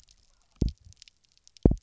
{"label": "biophony, double pulse", "recorder": "SoundTrap 300"}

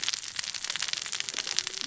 {"label": "biophony, cascading saw", "recorder": "SoundTrap 600 or HydroMoth"}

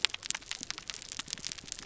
{"label": "biophony", "recorder": "SoundTrap 300"}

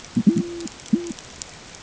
{"label": "ambient", "recorder": "HydroMoth"}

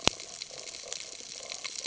{"label": "ambient", "recorder": "HydroMoth"}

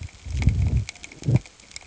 {"label": "ambient", "recorder": "HydroMoth"}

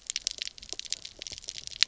{"label": "biophony, knock croak", "recorder": "SoundTrap 300"}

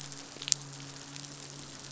{"label": "biophony, midshipman", "recorder": "SoundTrap 500"}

